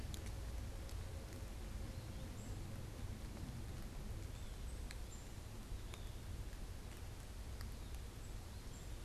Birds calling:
unidentified bird, Cooper's Hawk (Accipiter cooperii)

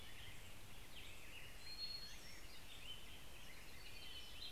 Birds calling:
American Robin (Turdus migratorius), Hermit Thrush (Catharus guttatus), Hermit Warbler (Setophaga occidentalis)

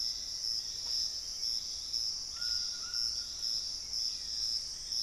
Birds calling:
Black-faced Antthrush (Formicarius analis), White-throated Toucan (Ramphastos tucanus), unidentified bird, Hauxwell's Thrush (Turdus hauxwelli), Piratic Flycatcher (Legatus leucophaius)

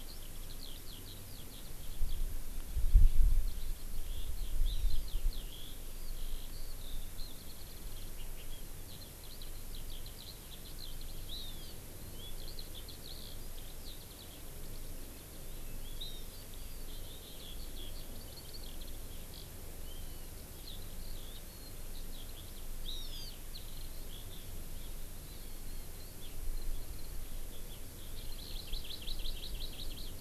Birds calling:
Eurasian Skylark (Alauda arvensis), Hawaii Amakihi (Chlorodrepanis virens)

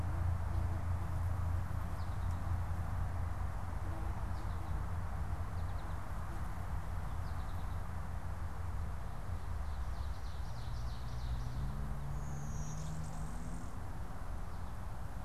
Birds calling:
Blue-winged Warbler (Vermivora cyanoptera), American Goldfinch (Spinus tristis), Ovenbird (Seiurus aurocapilla)

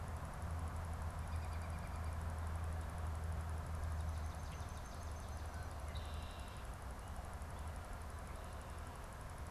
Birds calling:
Swamp Sparrow (Melospiza georgiana), Red-winged Blackbird (Agelaius phoeniceus), American Robin (Turdus migratorius)

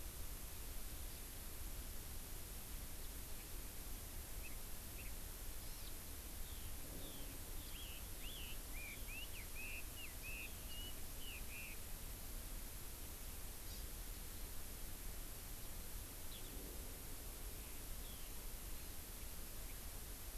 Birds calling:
Eurasian Skylark (Alauda arvensis), Chinese Hwamei (Garrulax canorus), Hawaii Amakihi (Chlorodrepanis virens)

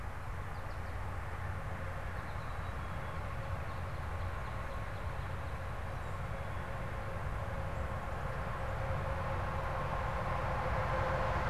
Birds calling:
Northern Cardinal (Cardinalis cardinalis), Black-capped Chickadee (Poecile atricapillus), American Goldfinch (Spinus tristis)

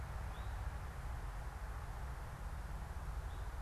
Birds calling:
Eastern Towhee (Pipilo erythrophthalmus)

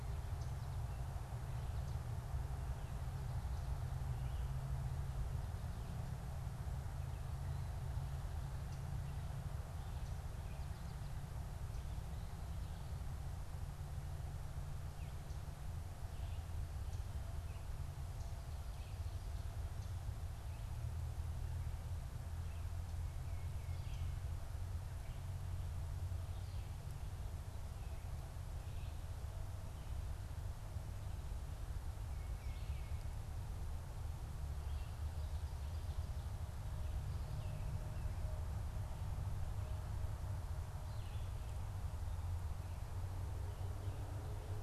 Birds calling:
Tufted Titmouse (Baeolophus bicolor)

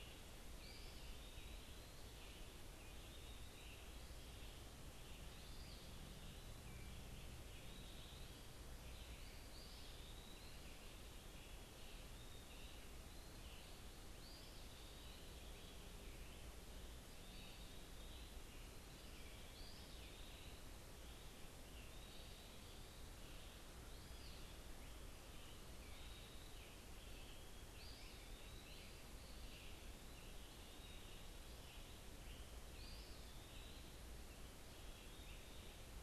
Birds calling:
unidentified bird, Eastern Wood-Pewee (Contopus virens), Red-eyed Vireo (Vireo olivaceus)

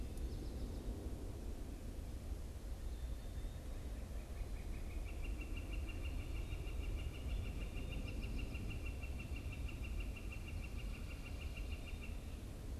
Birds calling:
Northern Flicker (Colaptes auratus)

